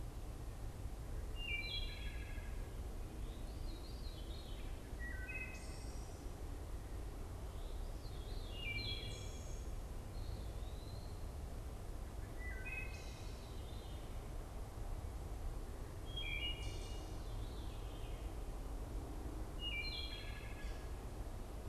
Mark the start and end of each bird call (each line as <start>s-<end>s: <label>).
0.0s-9.5s: Veery (Catharus fuscescens)
0.0s-9.7s: Wood Thrush (Hylocichla mustelina)
9.9s-11.3s: Eastern Wood-Pewee (Contopus virens)
12.0s-21.7s: Wood Thrush (Hylocichla mustelina)
12.7s-21.7s: Veery (Catharus fuscescens)